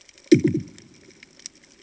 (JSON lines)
{"label": "anthrophony, bomb", "recorder": "HydroMoth"}